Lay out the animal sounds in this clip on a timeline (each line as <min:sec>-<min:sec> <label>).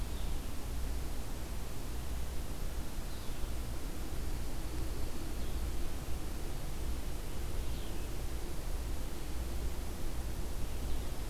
0:00.0-0:11.3 Blue-headed Vireo (Vireo solitarius)